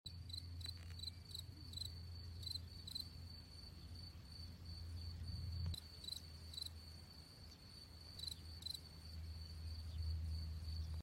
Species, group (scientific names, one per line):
Gryllus campestris
Orthoptera